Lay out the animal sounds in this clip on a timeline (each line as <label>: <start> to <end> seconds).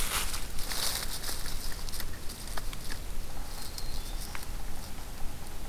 Black-throated Green Warbler (Setophaga virens): 3.1 to 4.6 seconds